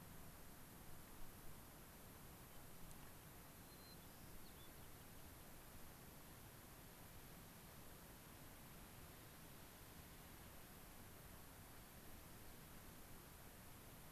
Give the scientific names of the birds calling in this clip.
Zonotrichia leucophrys